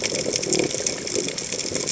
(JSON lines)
{"label": "biophony", "recorder": "HydroMoth"}